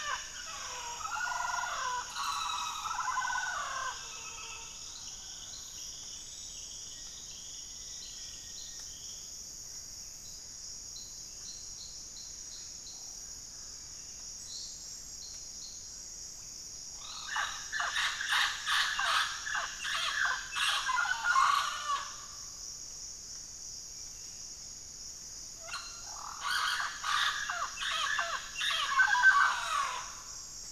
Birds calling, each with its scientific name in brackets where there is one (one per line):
Black-faced Antthrush (Formicarius analis)
White-rumped Sirystes (Sirystes albocinereus)
Mealy Parrot (Amazona farinosa)